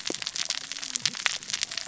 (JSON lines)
{"label": "biophony, cascading saw", "recorder": "SoundTrap 600 or HydroMoth"}